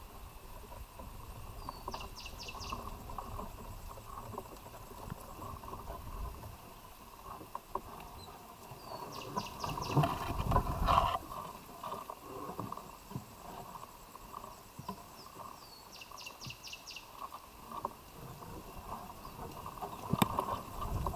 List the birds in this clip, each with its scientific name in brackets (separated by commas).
Cinnamon Bracken-Warbler (Bradypterus cinnamomeus)